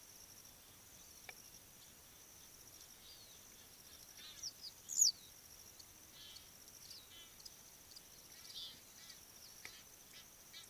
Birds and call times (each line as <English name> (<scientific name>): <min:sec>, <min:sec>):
Egyptian Goose (Alopochen aegyptiaca): 0:04.3
Western Yellow Wagtail (Motacilla flava): 0:05.0